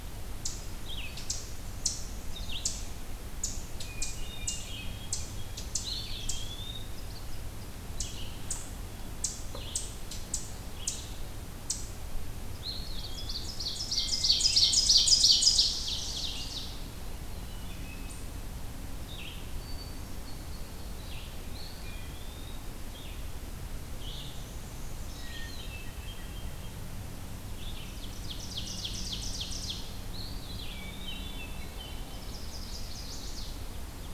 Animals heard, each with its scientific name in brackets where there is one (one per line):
Red-eyed Vireo (Vireo olivaceus)
Eastern Chipmunk (Tamias striatus)
Black-and-white Warbler (Mniotilta varia)
Hermit Thrush (Catharus guttatus)
Chestnut-sided Warbler (Setophaga pensylvanica)
Ovenbird (Seiurus aurocapilla)
Eastern Wood-Pewee (Contopus virens)